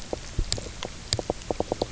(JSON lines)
{"label": "biophony, knock croak", "recorder": "SoundTrap 300"}